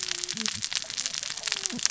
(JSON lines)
{"label": "biophony, cascading saw", "recorder": "SoundTrap 600 or HydroMoth"}